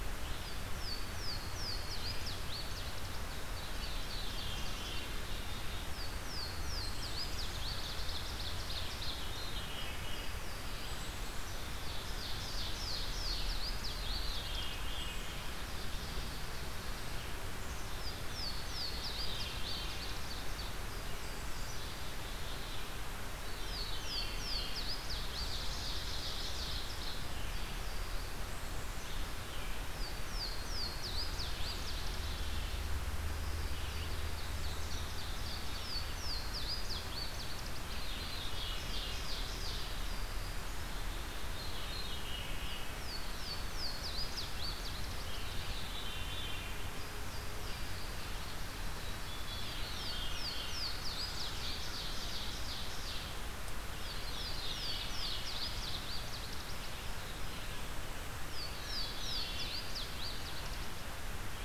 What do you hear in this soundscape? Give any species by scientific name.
Parkesia motacilla, Seiurus aurocapilla, Catharus fuscescens, Poecile atricapillus